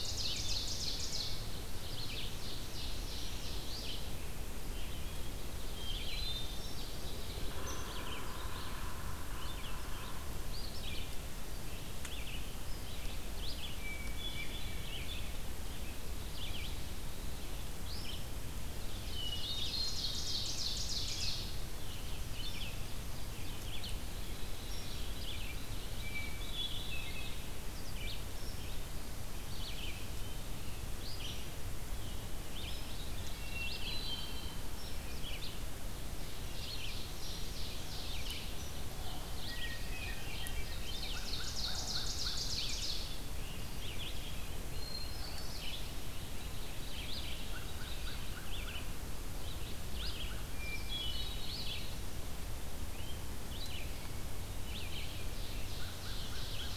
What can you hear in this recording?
Ovenbird, Red-eyed Vireo, Hermit Thrush, Yellow-bellied Sapsucker, American Crow